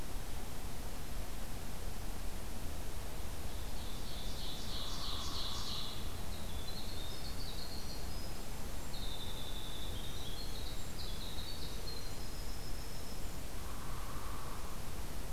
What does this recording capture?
Ovenbird, Hairy Woodpecker, Winter Wren